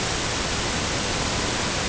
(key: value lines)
label: ambient
recorder: HydroMoth